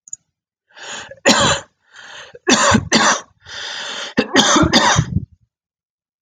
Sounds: Cough